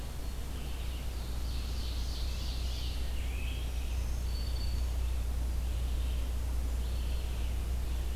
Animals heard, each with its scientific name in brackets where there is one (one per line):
Black-throated Green Warbler (Setophaga virens)
Scarlet Tanager (Piranga olivacea)
Ovenbird (Seiurus aurocapilla)
Red-eyed Vireo (Vireo olivaceus)